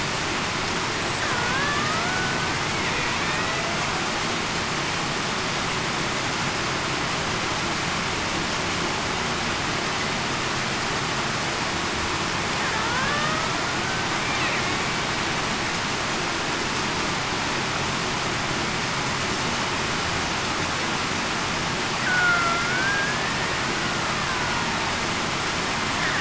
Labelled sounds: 1.3	1.9	killer whale, Bigg's (transient), 1.4 to 1.9 kHz
3.2	3.6	killer whale, Bigg's (transient), 1.8 to 2.0 kHz
12.7	13.4	killer whale, Bigg's (transient), 1.3 to 1.9 kHz
22.0	23.3	killer whale, Bigg's (transient), 1.3 to 1.9 kHz

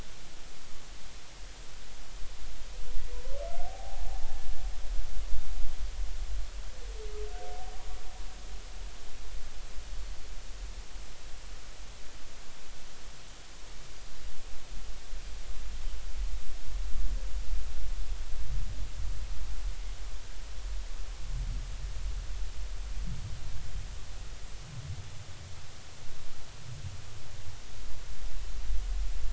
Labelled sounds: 3.6	4.1	humpback whale, 0.80 to 0.90 kHz

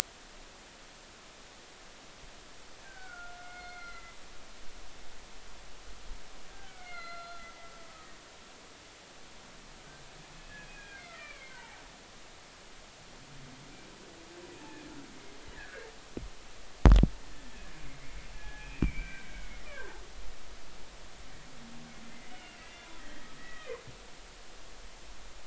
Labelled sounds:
2.8	4.2	humpback whale, 1.3 to 4.4 kHz
6.5	8.1	humpback whale, 1.2 to 4.3 kHz
10.5	11.8	humpback whale, 0.80 to 2.6 kHz
15.5	15.9	humpback whale, 1.4 to 2.0 kHz
18.3	20.0	humpback whale, 0.90 to 2.6 kHz
22.3	22.9	humpback whale, 1.9 to 3.0 kHz
23.4	23.7	humpback whale, 1.8 to 2.0 kHz

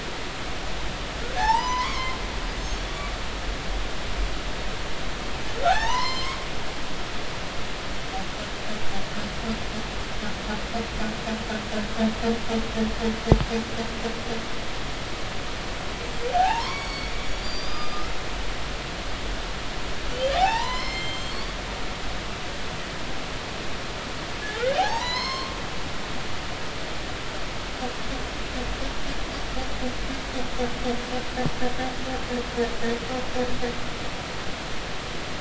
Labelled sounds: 1.4	2.2	humpback whale, 0.80 to 8.0 kHz
5.6	6.3	humpback whale, 0.80 to 5.5 kHz
16.3	18.1	humpback whale, 0.80 to 6.0 kHz
20.1	21.5	humpback whale, 0.80 to 7.6 kHz
24.8	25.5	humpback whale, 0.80 to 6.5 kHz

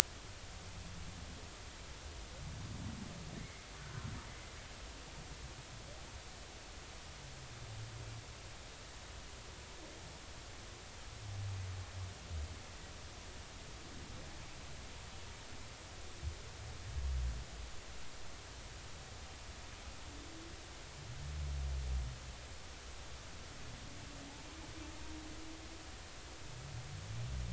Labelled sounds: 3.4	3.6	humpback whale, 2.0 to 2.2 kHz

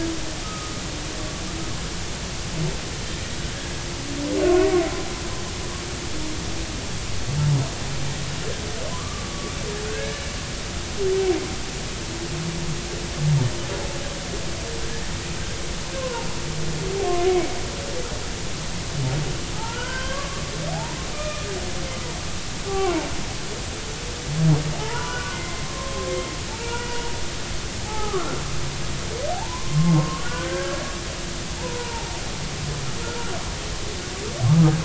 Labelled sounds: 0.4	0.8	humpback whale, 1.2 to 1.3 kHz
4.4	4.7	humpback whale, 0.99 to 1.5 kHz
8.9	9.3	humpback whale, 0.96 to 1.2 kHz
9.8	10.3	humpback whale, 1.4 to 1.8 kHz
16.0	16.3	humpback whale, 0.80 to 1.2 kHz
19.5	21.5	humpback whale, 0.80 to 2.5 kHz
22.7	23.1	humpback whale, 0.83 to 1.2 kHz
24.8	26.1	humpback whale, 0.80 to 2.1 kHz
26.5	27.0	humpback whale, 0.83 to 1.5 kHz
27.8	28.4	humpback whale, 0.80 to 1.4 kHz
29.3	30.8	humpback whale, 0.80 to 1.7 kHz
31.6	32.1	humpback whale, 0.80 to 1.1 kHz

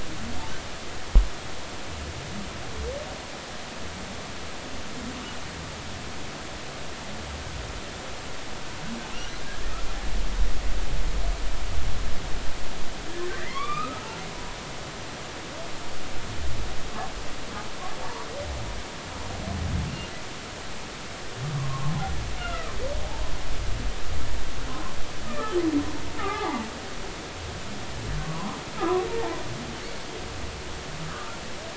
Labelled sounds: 13.4	14.1	humpback whale, 0.93 to 4.8 kHz
18.0	18.3	humpback whale, 0.86 to 1.2 kHz
21.6	22.7	humpback whale, 0.93 to 2.9 kHz
24.7	25.6	humpback whale, 0.99 to 1.8 kHz
26.2	26.7	humpback whale, 0.80 to 2.1 kHz
28.2	29.1	humpback whale, 0.93 to 1.4 kHz
31.1	31.3	humpback whale, 1.1 to 1.3 kHz

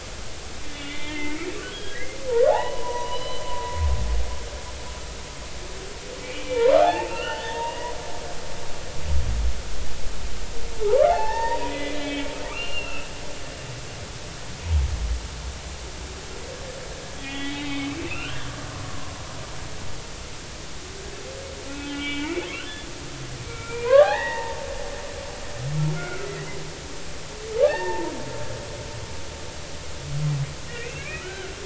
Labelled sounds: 0.7	2.2	humpback whale, 1.6 to 3.6 kHz
2.5	3.8	humpback whale, 0.80 to 4.1 kHz
6.2	7.9	humpback whale, 0.80 to 4.6 kHz
10.7	13.1	humpback whale, 0.80 to 4.8 kHz
17.2	18.4	humpback whale, 1.2 to 3.8 kHz
18.9	19.1	humpback whale, 0.99 to 1.1 kHz
21.6	22.4	humpback whale, 1.3 to 3.5 kHz
23.5	24.6	humpback whale, 0.80 to 3.9 kHz
25.9	26.3	humpback whale, 1.3 to 2.3 kHz
27.6	28.1	humpback whale, 0.80 to 4.6 kHz
30.7	31.5	humpback whale, 1.2 to 2.8 kHz

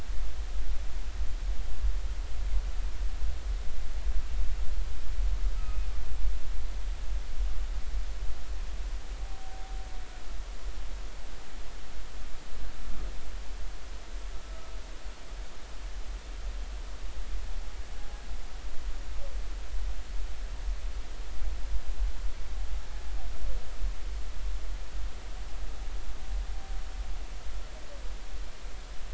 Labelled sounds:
5.5	5.9	humpback whale, 1.2 to 2.6 kHz
14.4	14.7	humpback whale, 1.2 to 1.3 kHz

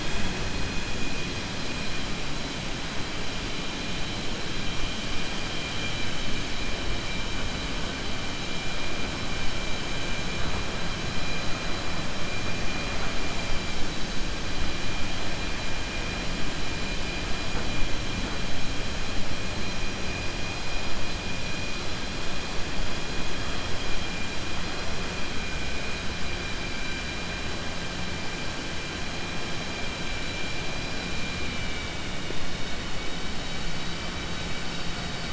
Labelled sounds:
31.4	32.1	vessel noise, 1.5 to 3.9 kHz

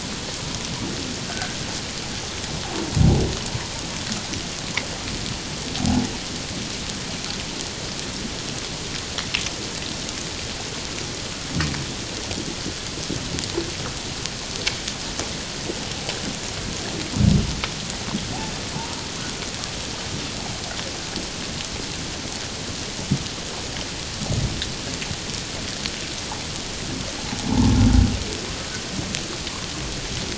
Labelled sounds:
1.2	1.6	humpback whale, 1.4 to 1.6 kHz
5.8	6.1	humpback whale, 0.78 to 0.88 kHz
27.5	27.8	humpback whale, 0.78 to 1.1 kHz

